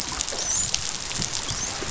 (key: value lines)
label: biophony, dolphin
recorder: SoundTrap 500